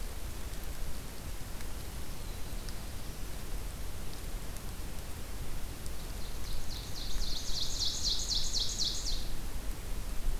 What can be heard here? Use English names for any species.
Black-throated Blue Warbler, Ovenbird